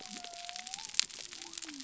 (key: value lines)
label: biophony
recorder: SoundTrap 300